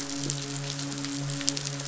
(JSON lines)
{"label": "biophony, midshipman", "recorder": "SoundTrap 500"}